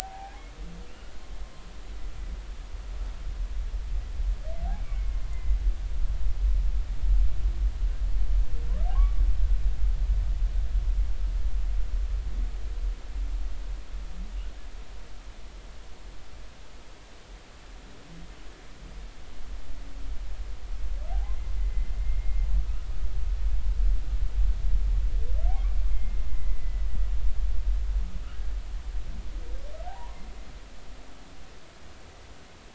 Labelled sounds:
0.9	1.4	humpback whale, 0.80 to 2.9 kHz
4.7	5.6	humpback whale, 2.0 to 2.4 kHz
8.9	9.2	humpback whale, 0.99 to 1.2 kHz
21.6	21.9	humpback whale, 1.9 to 2.1 kHz
22.6	23.5	humpback whale, 1.2 to 2.2 kHz
25.9	26.9	humpback whale, 1.9 to 2.2 kHz
28.2	28.5	humpback whale, 1.2 to 1.7 kHz
29.9	30.2	humpback whale, 0.80 to 1.1 kHz

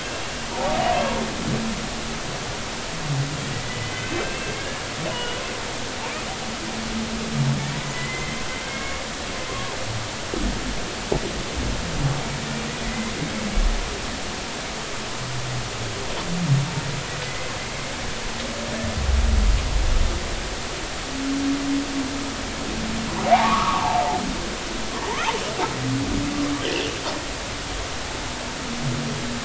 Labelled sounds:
0.5	0.8	humpback whale, 0.80 to 0.99 kHz
3.6	4.8	humpback whale, 1.6 to 2.7 kHz
5.1	5.4	humpback whale, 2.8 to 3.0 kHz
7.9	9.0	humpback whale, 1.9 to 3.1 kHz
9.5	9.8	humpback whale, 0.99 to 1.2 kHz
12.8	13.1	humpback whale, 1.9 to 2.1 kHz
17.3	17.9	humpback whale, 2.0 to 2.3 kHz
23.3	24.0	humpback whale, 0.80 to 1.4 kHz

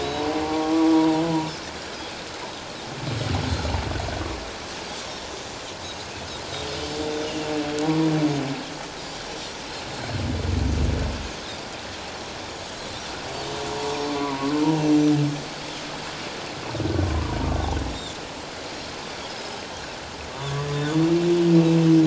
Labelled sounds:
0.0	1.0	humpback whale, 0.78 to 4.0 kHz
7.8	8.1	humpback whale, 0.91 to 1.0 kHz
12.5	12.9	humpback whale, 6.5 to 6.9 kHz
14.1	14.5	humpback whale, 0.91 to 1.2 kHz
17.3	17.5	humpback whale, 0.91 to 1.0 kHz
20.3	21.0	Pacific white-sided dolphin, 3.2 to 3.7 kHz

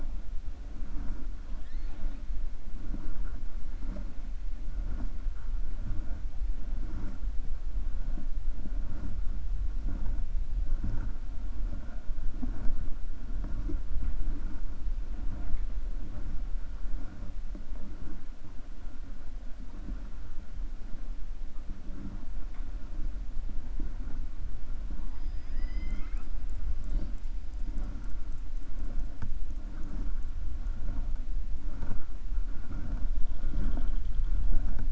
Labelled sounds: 1.5	2.2	killer whale, 0.69 to 4.5 kHz
25.1	26.3	killer whale, 0.81 to 7.7 kHz

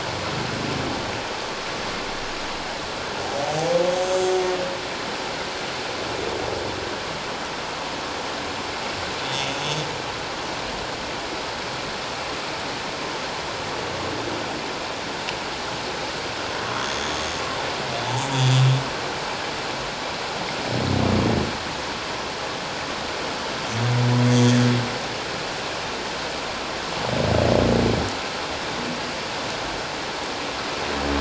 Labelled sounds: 3.9	4.4	humpback whale, 5.9 to 7.7 kHz
9.3	9.6	humpback whale, 3.4 to 3.7 kHz
16.7	17.1	humpback whale, 3.2 to 6.5 kHz
18.3	18.6	humpback whale, 3.3 to 3.5 kHz
24.3	24.5	humpback whale, 6.5 to 6.6 kHz

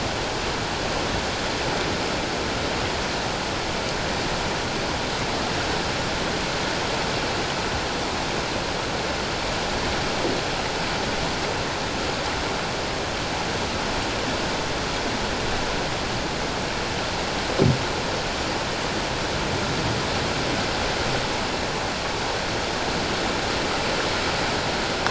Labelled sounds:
1.0	1.3	vessel noise, 7.7 to 7.9 kHz

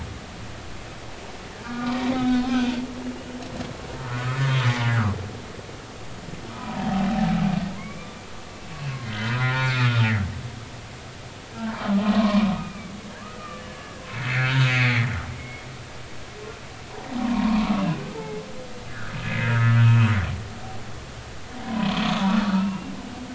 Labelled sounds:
1.6	2.5	humpback whale, 1.1 to 3.8 kHz
3.1	3.4	humpback whale, 2.8 to 3.1 kHz
4.0	4.3	humpback whale, 1.2 to 1.6 kHz
6.5	7.1	humpback whale, 0.80 to 1.1 kHz
7.7	10.1	humpback whale, 0.93 to 4.6 kHz
11.6	13.0	humpback whale, 0.86 to 2.6 kHz
13.4	15.6	humpback whale, 1.3 to 2.6 kHz
17.2	18.4	humpback whale, 0.80 to 1.3 kHz
19.4	20.2	humpback whale, 1.2 to 2.7 kHz
21.6	22.9	humpback whale, 0.90 to 2.9 kHz

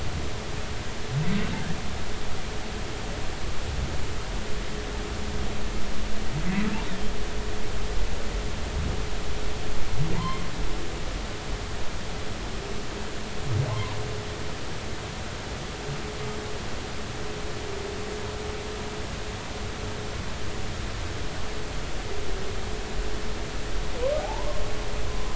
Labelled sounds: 10.1	10.4	humpback whale, 0.86 to 2.1 kHz
13.7	14.0	humpback whale, 0.83 to 1.1 kHz
24.2	25.3	humpback whale, 0.80 to 1.1 kHz

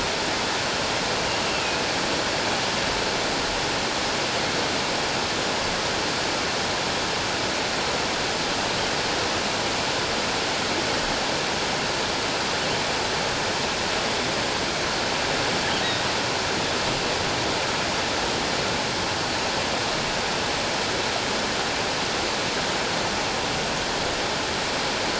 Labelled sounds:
1.4	1.8	killer whale, offshore, 2.4 to 2.8 kHz

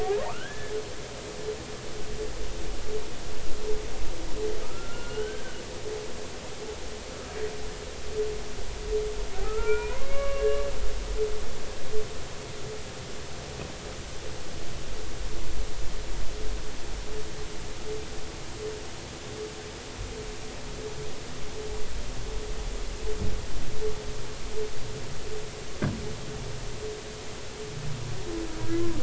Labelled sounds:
0.0	0.7	humpback whale, 0.80 to 3.5 kHz
4.7	5.6	humpback whale, 1.2 to 3.2 kHz
9.4	10.6	humpback whale, 0.90 to 2.9 kHz

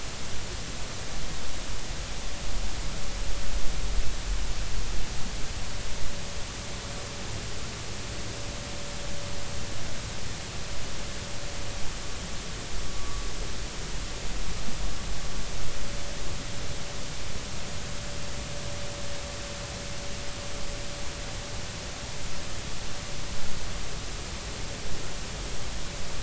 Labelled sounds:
12.9	13.2	vessel noise, 1.1 to 1.2 kHz

